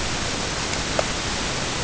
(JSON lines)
{"label": "ambient", "recorder": "HydroMoth"}